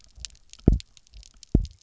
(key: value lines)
label: biophony, double pulse
recorder: SoundTrap 300